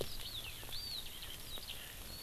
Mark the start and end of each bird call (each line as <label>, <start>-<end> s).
Eurasian Skylark (Alauda arvensis), 0.0-2.2 s